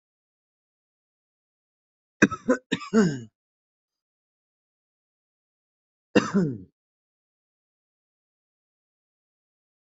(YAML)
expert_labels:
- quality: good
  cough_type: wet
  dyspnea: false
  wheezing: false
  stridor: false
  choking: false
  congestion: false
  nothing: true
  diagnosis: healthy cough
  severity: pseudocough/healthy cough
age: 18
gender: male
respiratory_condition: false
fever_muscle_pain: false
status: healthy